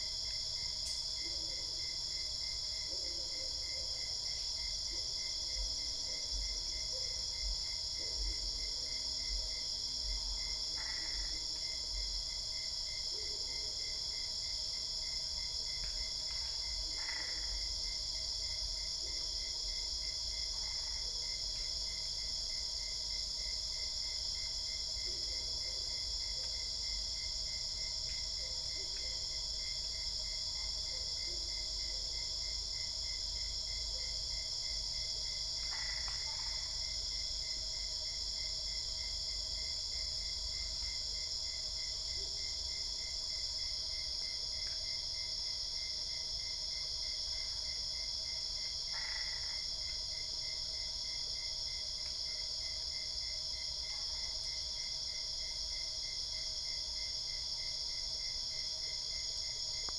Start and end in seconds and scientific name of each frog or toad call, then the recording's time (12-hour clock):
10.5	11.6	Boana albopunctata
16.8	17.7	Boana albopunctata
35.5	36.9	Boana albopunctata
48.8	49.9	Boana albopunctata
12:45am